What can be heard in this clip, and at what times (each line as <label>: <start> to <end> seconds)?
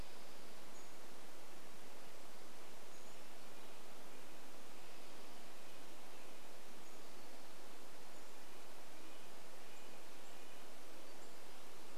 Pacific-slope Flycatcher call: 0 to 4 seconds
Red-breasted Nuthatch song: 2 to 12 seconds
Pacific-slope Flycatcher call: 6 to 8 seconds
warbler song: 10 to 12 seconds